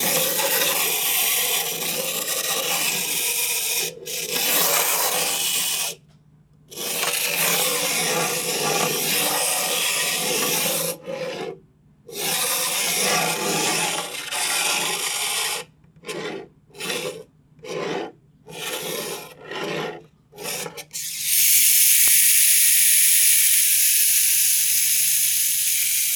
Is that a sound of somebody washing dishes?
no